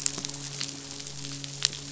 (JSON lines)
{"label": "biophony, midshipman", "recorder": "SoundTrap 500"}